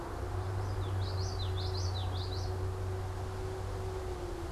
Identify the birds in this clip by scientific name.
Geothlypis trichas